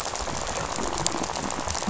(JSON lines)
{"label": "biophony, rattle", "recorder": "SoundTrap 500"}